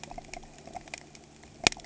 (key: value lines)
label: anthrophony, boat engine
recorder: HydroMoth